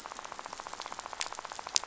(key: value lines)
label: biophony, rattle
recorder: SoundTrap 500